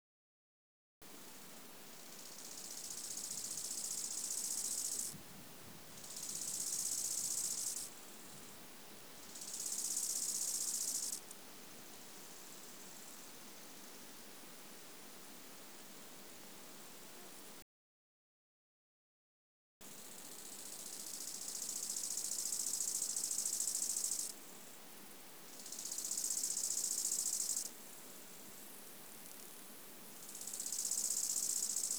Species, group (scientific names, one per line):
Chorthippus biguttulus
Orthoptera